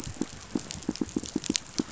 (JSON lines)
{"label": "biophony, pulse", "recorder": "SoundTrap 500"}